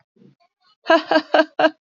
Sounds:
Laughter